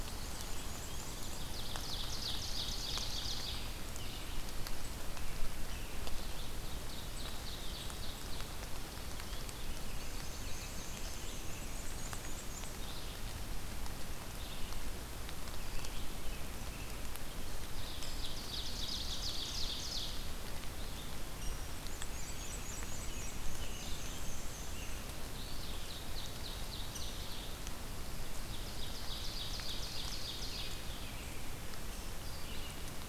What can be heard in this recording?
Black-and-white Warbler, Ovenbird, American Robin, Rose-breasted Grosbeak